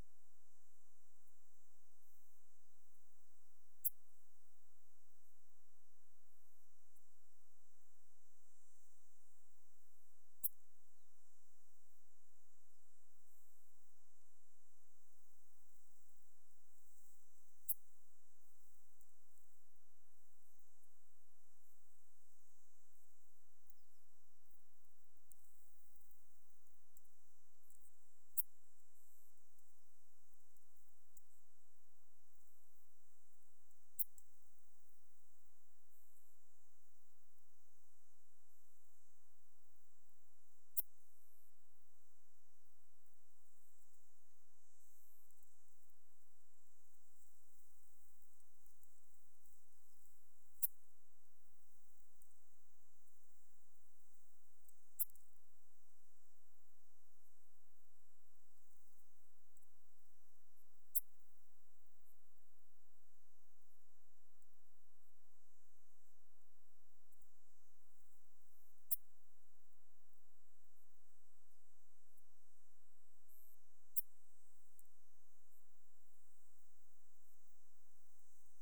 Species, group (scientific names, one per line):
Steropleurus andalusius
Orthoptera